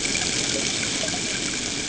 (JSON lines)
{"label": "ambient", "recorder": "HydroMoth"}